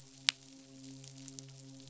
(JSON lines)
{"label": "biophony, midshipman", "recorder": "SoundTrap 500"}